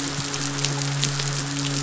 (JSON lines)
{"label": "biophony, midshipman", "recorder": "SoundTrap 500"}